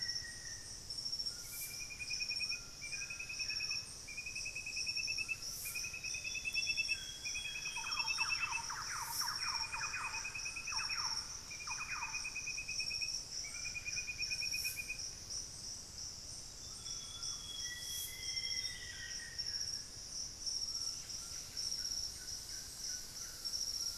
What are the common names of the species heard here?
Black-faced Antthrush, Solitary Black Cacique, Buff-breasted Wren, White-throated Toucan, Amazonian Grosbeak, Thrush-like Wren, unidentified bird